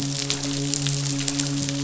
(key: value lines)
label: biophony, midshipman
recorder: SoundTrap 500